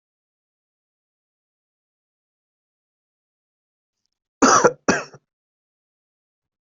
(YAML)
expert_labels:
- quality: good
  cough_type: unknown
  dyspnea: false
  wheezing: false
  stridor: false
  choking: false
  congestion: false
  nothing: true
  diagnosis: lower respiratory tract infection
  severity: mild
age: 36
gender: female
respiratory_condition: false
fever_muscle_pain: false
status: COVID-19